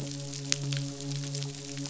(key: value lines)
label: biophony, midshipman
recorder: SoundTrap 500